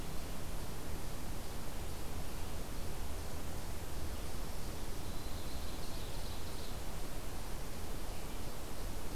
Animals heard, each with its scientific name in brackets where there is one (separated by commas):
Ovenbird (Seiurus aurocapilla)